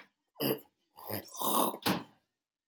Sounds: Throat clearing